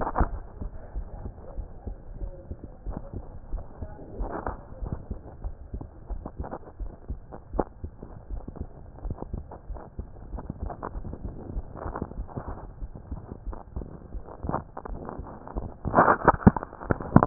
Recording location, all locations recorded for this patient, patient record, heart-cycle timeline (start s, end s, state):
aortic valve (AV)
aortic valve (AV)+pulmonary valve (PV)+tricuspid valve (TV)+mitral valve (MV)
#Age: Child
#Sex: Female
#Height: 115.0 cm
#Weight: 15.7 kg
#Pregnancy status: False
#Murmur: Absent
#Murmur locations: nan
#Most audible location: nan
#Systolic murmur timing: nan
#Systolic murmur shape: nan
#Systolic murmur grading: nan
#Systolic murmur pitch: nan
#Systolic murmur quality: nan
#Diastolic murmur timing: nan
#Diastolic murmur shape: nan
#Diastolic murmur grading: nan
#Diastolic murmur pitch: nan
#Diastolic murmur quality: nan
#Outcome: Normal
#Campaign: 2015 screening campaign
0.00	1.32	unannotated
1.32	1.56	diastole
1.56	1.66	S1
1.66	1.84	systole
1.84	1.98	S2
1.98	2.20	diastole
2.20	2.34	S1
2.34	2.50	systole
2.50	2.58	S2
2.58	2.86	diastole
2.86	2.96	S1
2.96	3.14	systole
3.14	3.26	S2
3.26	3.50	diastole
3.50	3.64	S1
3.64	3.80	systole
3.80	3.90	S2
3.90	4.14	diastole
4.14	4.32	S1
4.32	4.46	systole
4.46	4.58	S2
4.58	4.80	diastole
4.80	4.94	S1
4.94	5.08	systole
5.08	5.22	S2
5.22	5.42	diastole
5.42	5.56	S1
5.56	5.74	systole
5.74	5.86	S2
5.86	6.10	diastole
6.10	6.24	S1
6.24	6.38	systole
6.38	6.52	S2
6.52	6.80	diastole
6.80	6.92	S1
6.92	7.10	systole
7.10	7.22	S2
7.22	7.52	diastole
7.52	7.66	S1
7.66	7.84	systole
7.84	7.98	S2
7.98	8.30	diastole
8.30	8.44	S1
8.44	8.60	systole
8.60	8.72	S2
8.72	9.04	diastole
9.04	9.18	S1
9.18	9.32	systole
9.32	9.44	S2
9.44	9.68	diastole
9.68	9.80	S1
9.80	9.98	systole
9.98	10.08	S2
10.08	10.32	diastole
10.32	10.42	S1
10.42	10.60	systole
10.60	10.74	S2
10.74	10.94	diastole
10.94	11.10	S1
11.10	11.24	systole
11.24	11.34	S2
11.34	11.54	diastole
11.54	11.66	S1
11.66	11.84	systole
11.84	11.96	S2
11.96	12.18	diastole
12.18	12.28	S1
12.28	12.46	systole
12.46	12.58	S2
12.58	12.82	diastole
12.82	12.92	S1
12.92	13.10	systole
13.10	13.22	S2
13.22	13.46	diastole
13.46	13.58	S1
13.58	13.76	systole
13.76	13.90	S2
13.90	14.14	diastole
14.14	14.24	S1
14.24	14.42	systole
14.42	14.58	S2
14.58	14.89	diastole
14.89	15.02	S1
15.02	15.16	systole
15.16	15.28	S2
15.28	15.56	diastole
15.56	17.26	unannotated